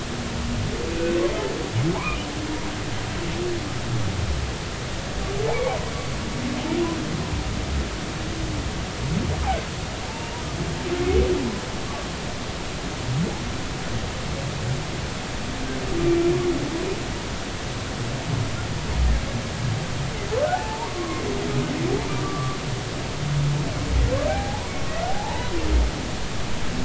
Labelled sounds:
0.9	2.2	humpback whale, 0.80 to 2.7 kHz
5.5	5.8	humpback whale, 2.1 to 2.4 kHz
16.0	16.2	humpback whale, 2.3 to 2.4 kHz
20.5	21.2	humpback whale, 0.80 to 1.2 kHz
22.1	22.6	humpback whale, 1.1 to 1.2 kHz
24.3	24.7	humpback whale, 0.80 to 1.0 kHz
25.1	25.5	humpback whale, 0.80 to 1.0 kHz

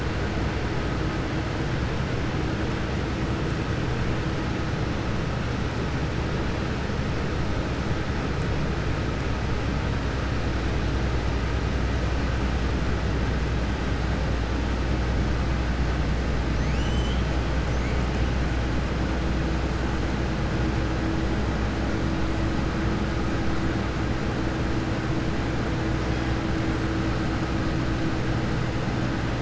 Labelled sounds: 16.5	17.2	killer whale, Bigg's (transient), 2.0 to 7.6 kHz

